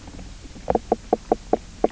{"label": "biophony, knock croak", "recorder": "SoundTrap 300"}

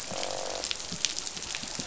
{"label": "biophony, croak", "recorder": "SoundTrap 500"}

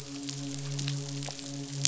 {"label": "biophony, midshipman", "recorder": "SoundTrap 500"}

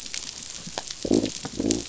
{"label": "biophony", "recorder": "SoundTrap 500"}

